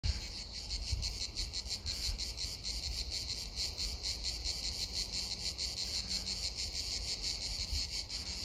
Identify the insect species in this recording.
Cicada orni